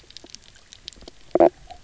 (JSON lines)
{"label": "biophony, knock croak", "recorder": "SoundTrap 300"}